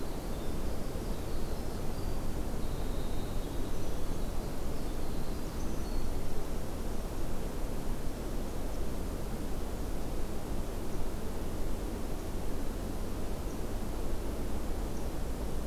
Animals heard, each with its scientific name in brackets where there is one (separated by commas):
Winter Wren (Troglodytes hiemalis)